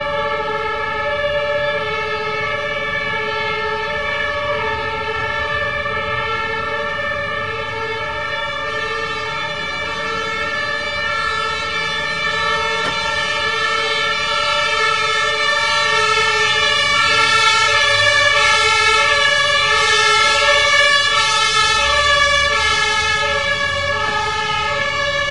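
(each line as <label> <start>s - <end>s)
A loud emergency siren alarm gradually increases in volume on the street. 0.0s - 25.3s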